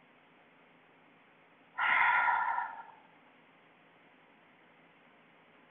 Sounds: Sigh